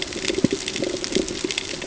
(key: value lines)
label: ambient
recorder: HydroMoth